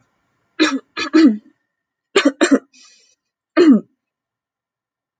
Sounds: Throat clearing